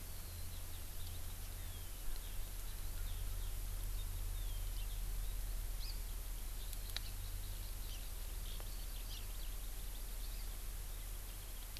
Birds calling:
Hawaii Amakihi (Chlorodrepanis virens), Eurasian Skylark (Alauda arvensis)

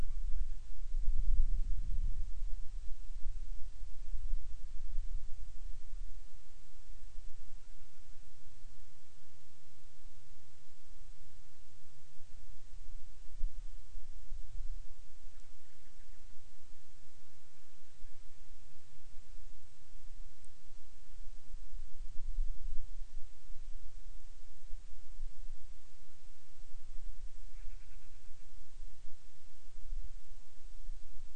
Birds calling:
Band-rumped Storm-Petrel (Hydrobates castro)

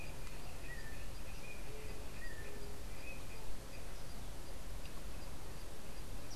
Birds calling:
Yellow-backed Oriole (Icterus chrysater)

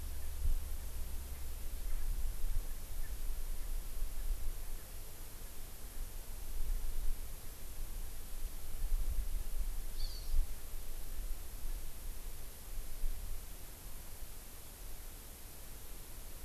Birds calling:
Hawaii Amakihi (Chlorodrepanis virens)

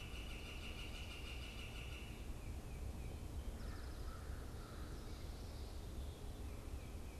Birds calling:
American Crow (Corvus brachyrhynchos), Northern Flicker (Colaptes auratus)

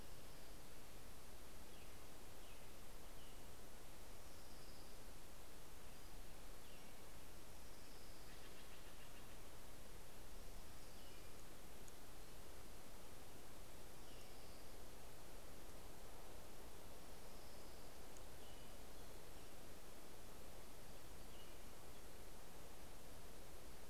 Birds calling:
Steller's Jay (Cyanocitta stelleri), Orange-crowned Warbler (Leiothlypis celata), American Robin (Turdus migratorius)

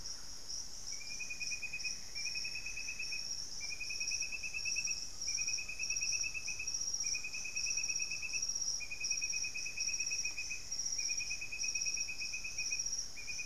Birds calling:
Great Antshrike (Taraba major), Thrush-like Wren (Campylorhynchus turdinus)

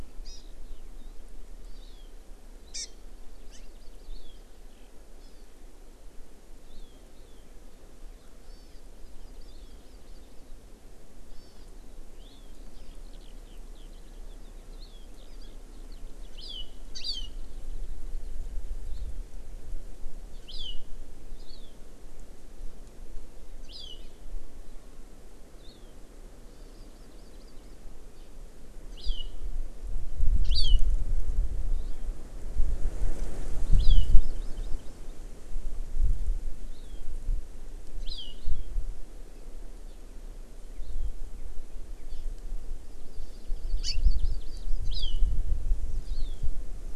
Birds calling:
Hawaii Amakihi (Chlorodrepanis virens), Eurasian Skylark (Alauda arvensis)

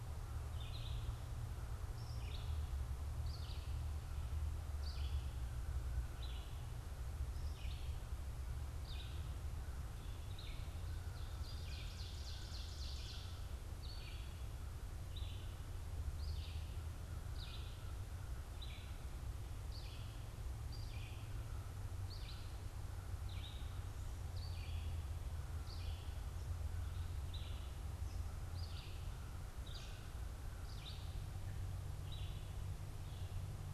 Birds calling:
Red-eyed Vireo (Vireo olivaceus), Ovenbird (Seiurus aurocapilla), American Crow (Corvus brachyrhynchos)

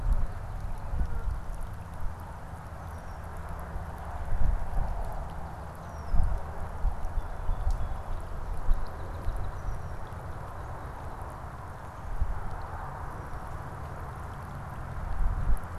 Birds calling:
unidentified bird, Song Sparrow (Melospiza melodia)

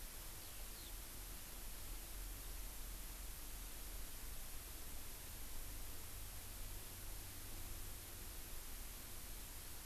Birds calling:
Eurasian Skylark (Alauda arvensis)

